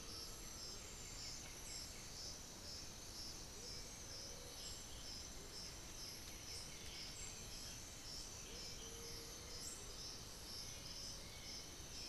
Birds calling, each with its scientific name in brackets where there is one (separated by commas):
Black-billed Thrush (Turdus ignobilis), White-winged Becard (Pachyramphus polychopterus), Undulated Tinamou (Crypturellus undulatus), Amazonian Motmot (Momotus momota), unidentified bird